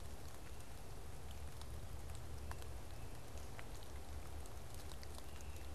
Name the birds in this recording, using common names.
Great Crested Flycatcher